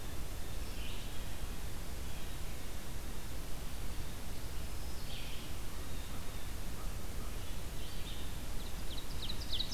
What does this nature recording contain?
Blue Jay, Red-eyed Vireo, Black-throated Green Warbler, Ovenbird